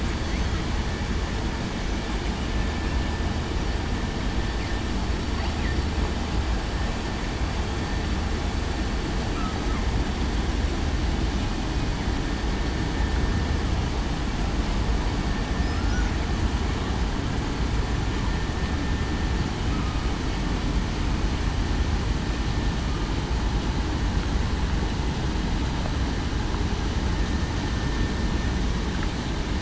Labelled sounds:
15.6	16.0	killer whale, southern resident, 5.0 to 5.2 kHz

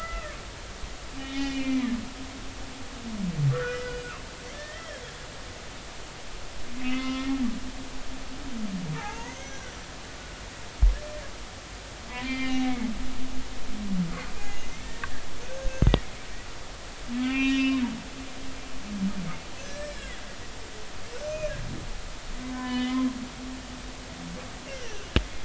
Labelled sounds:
1.1	1.9	humpback whale, 1.8 to 4.4 kHz
3.5	4.1	humpback whale, 1.3 to 5.0 kHz
4.5	5.0	humpback whale, 1.6 to 2.1 kHz
6.8	7.4	humpback whale, 0.99 to 2.2 kHz
9.0	9.7	humpback whale, 0.80 to 6.0 kHz
12.1	12.9	humpback whale, 0.80 to 4.0 kHz
14.4	14.7	humpback whale, 6.4 to 6.6 kHz
15.5	15.9	humpback whale, 1.5 to 6.4 kHz
17.2	17.8	humpback whale, 1.0 to 5.1 kHz
19.6	20.1	humpback whale, 1.5 to 1.9 kHz
21.2	21.5	humpback whale, 2.3 to 6.3 kHz
22.4	23.0	humpback whale, 0.96 to 3.8 kHz
24.7	25.1	humpback whale, 1.5 to 2.2 kHz

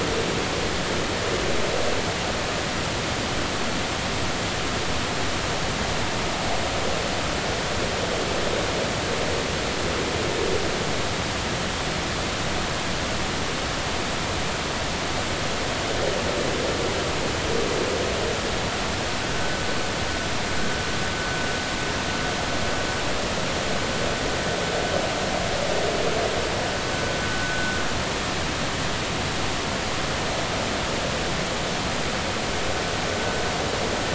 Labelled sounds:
19.3	19.6	vessel noise, 1.5 to 1.6 kHz
27.4	27.8	vessel noise, 1.4 to 1.5 kHz

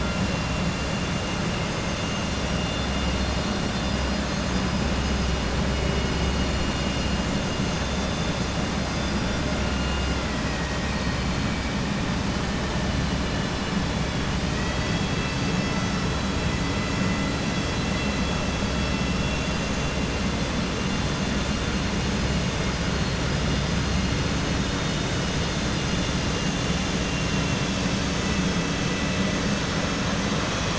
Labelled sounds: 20.8	21.8	vessel noise, 2.8 to 4.3 kHz
26.2	27.7	vessel noise, 2.1 to 4.2 kHz

